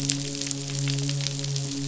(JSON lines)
{"label": "biophony, midshipman", "recorder": "SoundTrap 500"}